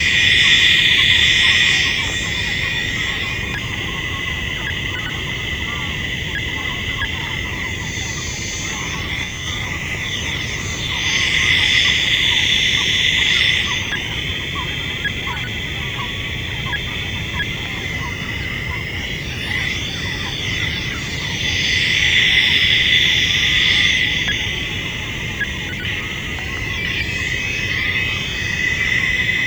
Are there several sources of sounds?
yes